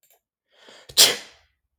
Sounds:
Sneeze